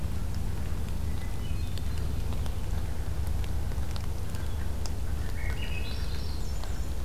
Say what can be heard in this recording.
Hermit Thrush, Swainson's Thrush